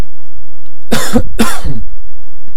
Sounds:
Cough